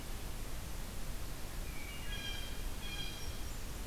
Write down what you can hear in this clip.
Wood Thrush, Blue Jay, Hermit Thrush